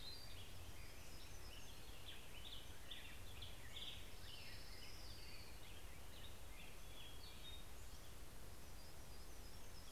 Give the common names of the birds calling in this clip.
Black-headed Grosbeak, Hermit Thrush, Hermit Warbler, Orange-crowned Warbler